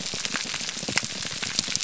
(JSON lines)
{"label": "biophony", "recorder": "SoundTrap 300"}